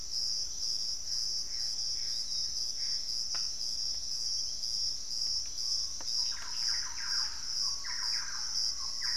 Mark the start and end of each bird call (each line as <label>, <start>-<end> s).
Gilded Barbet (Capito auratus), 0.0-3.0 s
Piratic Flycatcher (Legatus leucophaius), 0.0-9.2 s
Gray Antbird (Cercomacra cinerascens), 0.7-3.4 s
Screaming Piha (Lipaugus vociferans), 5.3-9.2 s
Thrush-like Wren (Campylorhynchus turdinus), 5.9-9.2 s